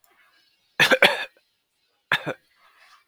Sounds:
Cough